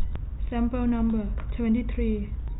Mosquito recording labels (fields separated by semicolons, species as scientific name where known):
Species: no mosquito; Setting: cup